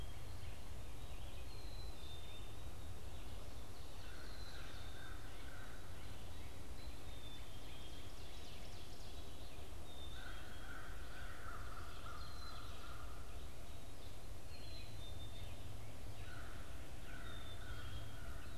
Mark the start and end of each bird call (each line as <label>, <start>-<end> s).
Black-capped Chickadee (Poecile atricapillus), 0.0-5.4 s
Red-eyed Vireo (Vireo olivaceus), 0.0-7.4 s
American Crow (Corvus brachyrhynchos), 3.8-5.9 s
Ovenbird (Seiurus aurocapilla), 7.4-9.7 s
Black-capped Chickadee (Poecile atricapillus), 9.7-18.6 s
American Crow (Corvus brachyrhynchos), 9.9-13.4 s
Red-eyed Vireo (Vireo olivaceus), 13.9-18.6 s
American Crow (Corvus brachyrhynchos), 16.0-18.6 s